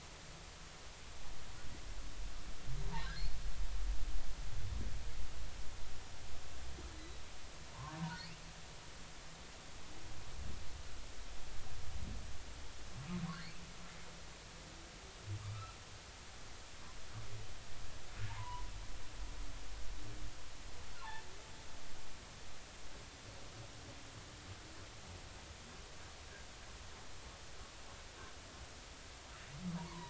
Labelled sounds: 7.0	8.0	humpback whale, 0.86 to 4.1 kHz
13.3	13.6	humpback whale, 4.2 to 4.6 kHz
18.3	18.7	humpback whale, 0.83 to 1.1 kHz
29.8	30.0	humpback whale, 0.90 to 1.2 kHz

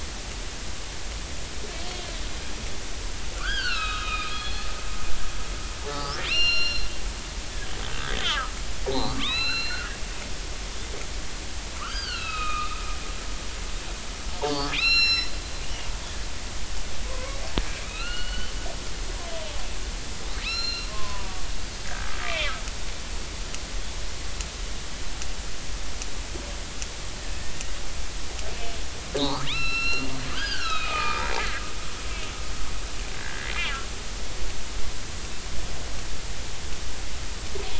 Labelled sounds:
3.3	4.7	killer whale, northern resident, 1.1 to 5.0 kHz
5.9	6.9	killer whale, northern resident, 1.1 to 5.7 kHz
7.9	9.8	killer whale, northern resident, 0.80 to 5.5 kHz
11.8	12.8	killer whale, northern resident, 0.93 to 4.9 kHz
14.7	15.9	killer whale, northern resident, 1.3 to 6.9 kHz
17.9	18.5	killer whale, northern resident, 0.96 to 4.6 kHz
20.4	21.4	killer whale, northern resident, 0.90 to 7.0 kHz
21.8	22.5	killer whale, northern resident, 1.5 to 2.7 kHz
29.2	31.2	killer whale, northern resident, 0.80 to 5.5 kHz
33.2	33.5	killer whale, northern resident, 1.5 to 1.8 kHz

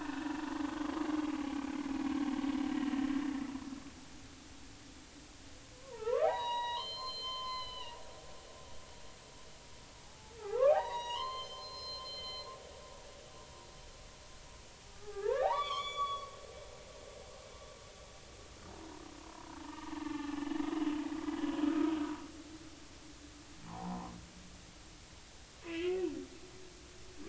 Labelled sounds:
0.0	0.3	humpback whale, 2.5 to 2.7 kHz
5.7	8.0	humpback whale, 0.80 to 5.3 kHz
10.0	12.5	humpback whale, 0.80 to 7.7 kHz
14.9	16.3	humpback whale, 0.80 to 6.9 kHz
19.2	20.4	humpback whale, 0.80 to 2.8 kHz
21.2	21.4	humpback whale, 1.95 to 2.02 kHz
23.7	24.1	humpback whale, 0.80 to 1.2 kHz
25.6	26.1	humpback whale, 1.9 to 3.2 kHz

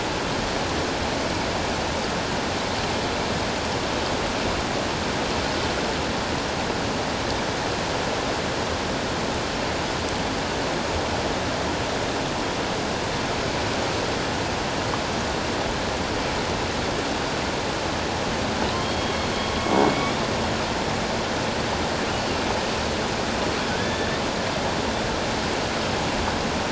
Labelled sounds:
18.8	19.1	killer whale, northern resident, A clan, AA subclan, call N05i, 3.1 to 3.3 kHz
19.6	20.2	killer whale, northern resident, A clan, AA subclan, call N05i, 2.1 to 3.6 kHz
23.8	24.1	killer whale, northern resident, A clan, AA subclan, call N02, 1.6 to 3.6 kHz

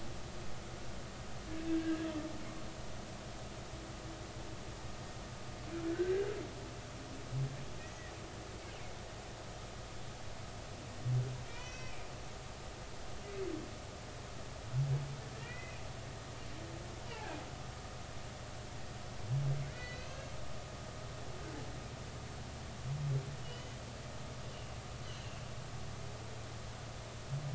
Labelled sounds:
1.7	2.1	humpback whale, 1.5 to 1.7 kHz
5.9	6.3	humpback whale, 1.4 to 2.0 kHz
7.8	8.1	humpback whale, 1.8 to 2.0 kHz
11.5	12.9	humpback whale, 1.8 to 6.2 kHz
15.3	15.8	humpback whale, 1.7 to 2.6 kHz
17.1	17.4	humpback whale, 0.80 to 2.0 kHz
19.7	20.3	humpback whale, 1.9 to 4.7 kHz
23.4	23.7	humpback whale, 2.8 to 3.1 kHz
25.0	25.4	humpback whale, 2.7 to 3.1 kHz

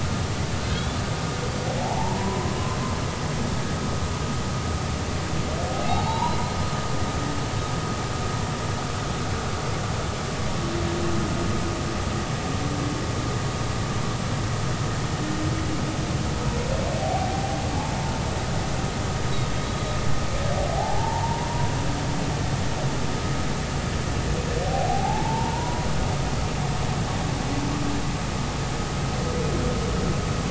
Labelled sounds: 1.7	2.6	humpback whale, 0.80 to 3.6 kHz
5.8	6.4	humpback whale, 0.80 to 4.5 kHz
17.0	17.6	humpback whale, 0.80 to 0.83 kHz
20.8	21.5	humpback whale, 0.80 to 1.1 kHz
24.9	25.9	humpback whale, 0.80 to 1.0 kHz

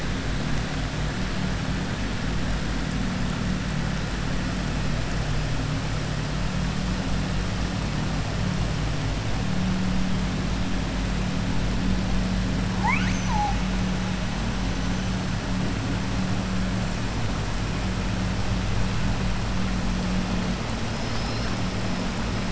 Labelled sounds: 12.7	13.6	killer whale, southern resident, 0.80 to 6.6 kHz
21.0	21.5	killer whale, southern resident, 3.8 to 5.6 kHz

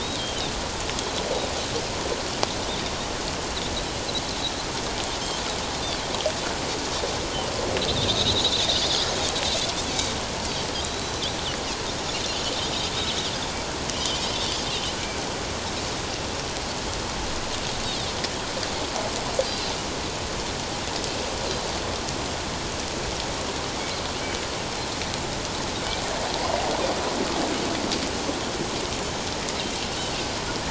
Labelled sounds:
8.1	8.5	Pacific white-sided dolphin, 3.4 to 4.1 kHz
10.8	11.2	Pacific white-sided dolphin, 3.7 to 4.0 kHz
13.9	14.6	Pacific white-sided dolphin, 2.8 to 6.1 kHz
19.5	19.7	Pacific white-sided dolphin, 3.8 to 4.2 kHz
24.2	24.4	Pacific white-sided dolphin, 2.8 to 3.1 kHz

